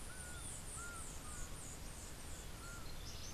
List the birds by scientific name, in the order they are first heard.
Melozone leucotis, Herpetotheres cachinnans